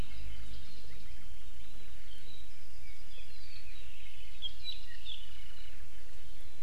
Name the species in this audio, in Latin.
Himatione sanguinea